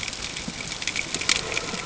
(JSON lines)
{"label": "ambient", "recorder": "HydroMoth"}